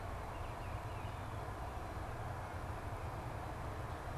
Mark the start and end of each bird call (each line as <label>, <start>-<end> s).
Baltimore Oriole (Icterus galbula), 0.0-1.2 s